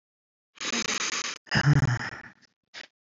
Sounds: Sigh